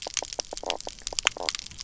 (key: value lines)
label: biophony, knock croak
recorder: SoundTrap 300